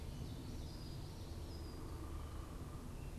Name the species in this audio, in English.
Common Yellowthroat, unidentified bird